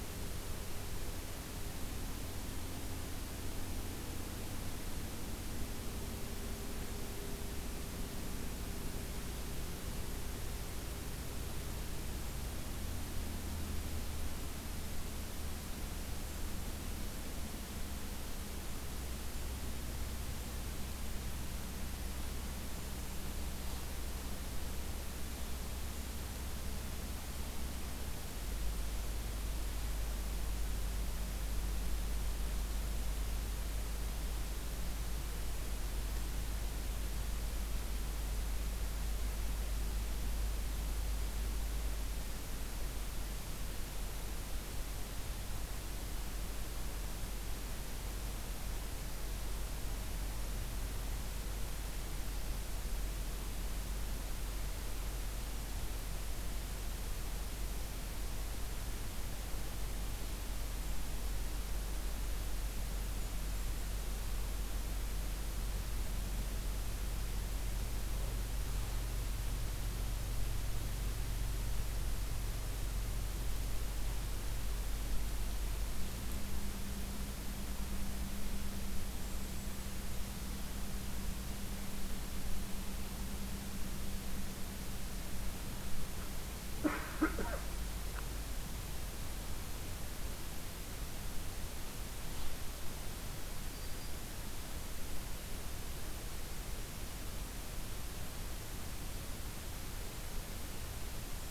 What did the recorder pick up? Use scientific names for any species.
Regulus satrapa, Setophaga virens